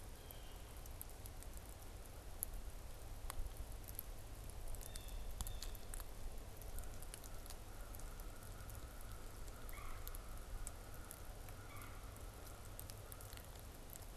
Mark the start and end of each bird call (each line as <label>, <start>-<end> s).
Blue Jay (Cyanocitta cristata), 0.0-0.7 s
Blue Jay (Cyanocitta cristata), 4.7-5.9 s
American Crow (Corvus brachyrhynchos), 6.6-14.1 s
Red-bellied Woodpecker (Melanerpes carolinus), 9.5-10.1 s
Red-bellied Woodpecker (Melanerpes carolinus), 11.4-12.0 s